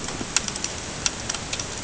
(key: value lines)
label: ambient
recorder: HydroMoth